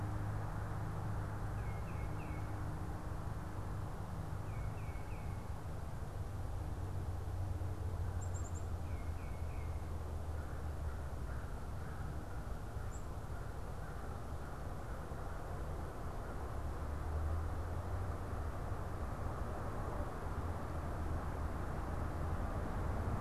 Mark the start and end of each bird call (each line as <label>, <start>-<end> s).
Tufted Titmouse (Baeolophus bicolor), 1.4-2.6 s
Tufted Titmouse (Baeolophus bicolor), 4.3-5.5 s
unidentified bird, 8.0-8.7 s
Tufted Titmouse (Baeolophus bicolor), 8.6-9.8 s
American Crow (Corvus brachyrhynchos), 10.1-16.6 s